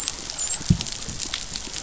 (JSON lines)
{"label": "biophony, dolphin", "recorder": "SoundTrap 500"}